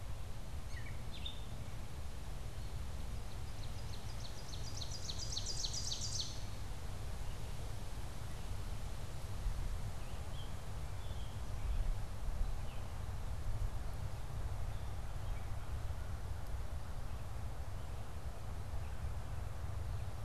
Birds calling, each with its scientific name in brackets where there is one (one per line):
Red-eyed Vireo (Vireo olivaceus)
Gray Catbird (Dumetella carolinensis)
Ovenbird (Seiurus aurocapilla)